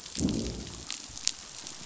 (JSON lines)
{"label": "biophony, growl", "recorder": "SoundTrap 500"}